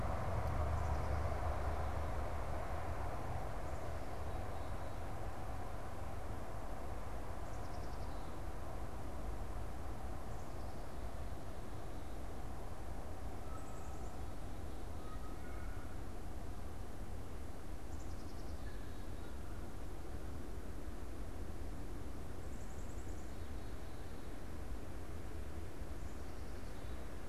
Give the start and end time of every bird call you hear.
[7.32, 8.32] Black-capped Chickadee (Poecile atricapillus)
[13.12, 20.42] Canada Goose (Branta canadensis)
[13.42, 14.42] Black-capped Chickadee (Poecile atricapillus)
[17.82, 18.82] Black-capped Chickadee (Poecile atricapillus)
[22.32, 24.02] Black-capped Chickadee (Poecile atricapillus)

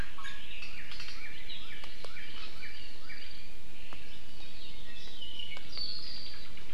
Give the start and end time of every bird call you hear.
[0.20, 0.50] Iiwi (Drepanis coccinea)
[1.10, 3.20] Northern Cardinal (Cardinalis cardinalis)
[4.40, 6.50] Apapane (Himatione sanguinea)

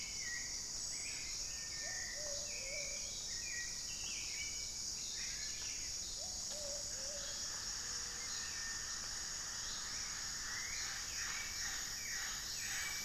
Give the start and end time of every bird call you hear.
[0.00, 0.64] Plumbeous Antbird (Myrmelastes hyperythrus)
[0.00, 8.04] Plumbeous Pigeon (Patagioenas plumbea)
[0.00, 8.14] Cinereous Tinamou (Crypturellus cinereus)
[0.00, 13.04] Hauxwell's Thrush (Turdus hauxwelli)

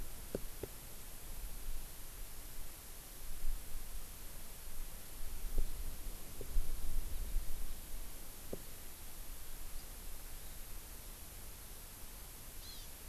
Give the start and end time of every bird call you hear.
[12.60, 12.89] Hawaii Amakihi (Chlorodrepanis virens)

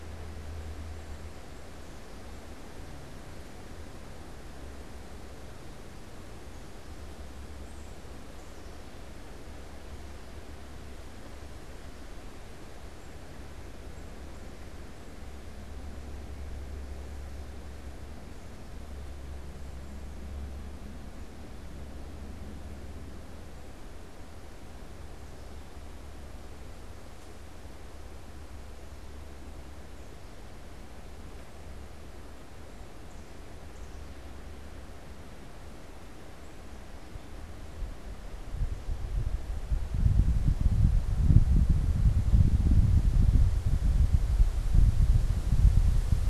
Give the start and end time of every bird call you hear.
[0.00, 2.60] unidentified bird
[7.40, 9.00] Black-capped Chickadee (Poecile atricapillus)
[12.80, 14.80] unidentified bird

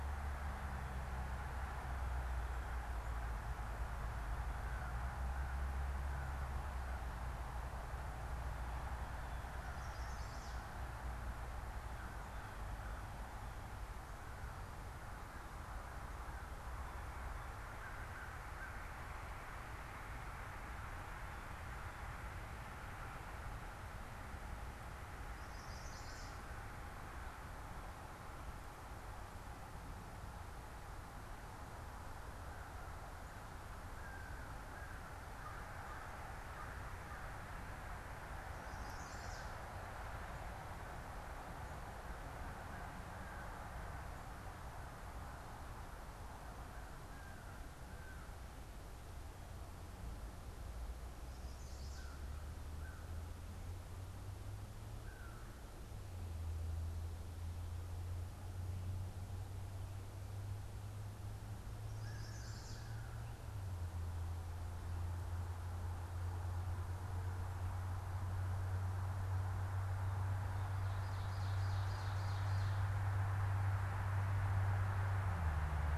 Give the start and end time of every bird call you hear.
[4.43, 20.13] American Crow (Corvus brachyrhynchos)
[9.53, 10.73] Chestnut-sided Warbler (Setophaga pensylvanica)
[25.33, 26.63] Chestnut-sided Warbler (Setophaga pensylvanica)
[31.53, 51.13] American Crow (Corvus brachyrhynchos)
[38.73, 39.63] Chestnut-sided Warbler (Setophaga pensylvanica)
[50.93, 52.43] Chestnut-sided Warbler (Setophaga pensylvanica)
[51.83, 56.13] American Crow (Corvus brachyrhynchos)
[61.83, 63.23] Chestnut-sided Warbler (Setophaga pensylvanica)
[61.83, 63.63] American Crow (Corvus brachyrhynchos)
[70.73, 72.83] Ovenbird (Seiurus aurocapilla)

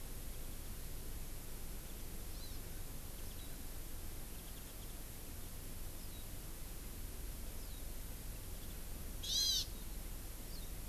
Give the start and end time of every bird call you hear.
[2.34, 2.64] Hawaii Amakihi (Chlorodrepanis virens)
[4.24, 5.04] Warbling White-eye (Zosterops japonicus)
[6.04, 6.24] Warbling White-eye (Zosterops japonicus)
[7.54, 7.84] Warbling White-eye (Zosterops japonicus)
[9.24, 9.64] Hawaiian Hawk (Buteo solitarius)
[10.54, 10.64] Warbling White-eye (Zosterops japonicus)

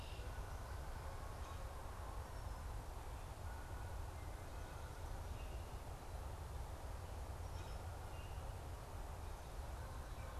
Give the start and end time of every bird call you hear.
[0.00, 10.39] Canada Goose (Branta canadensis)
[5.23, 5.93] Common Grackle (Quiscalus quiscula)

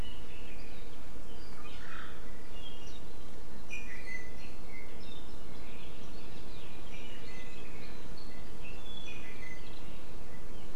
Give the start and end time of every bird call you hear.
[3.68, 4.88] Apapane (Himatione sanguinea)
[6.88, 9.78] Apapane (Himatione sanguinea)

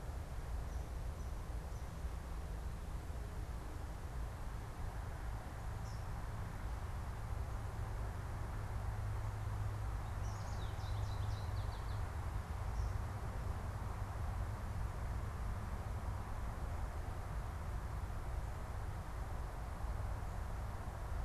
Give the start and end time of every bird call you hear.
[5.73, 6.13] Eastern Kingbird (Tyrannus tyrannus)
[9.83, 12.33] American Goldfinch (Spinus tristis)

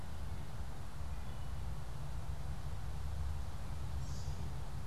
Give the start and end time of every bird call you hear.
[1.12, 1.72] Wood Thrush (Hylocichla mustelina)
[3.82, 4.52] American Robin (Turdus migratorius)

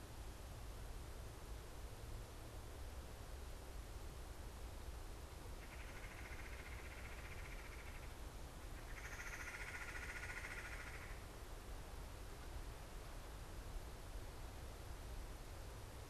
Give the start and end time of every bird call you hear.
[5.34, 11.34] Red-bellied Woodpecker (Melanerpes carolinus)

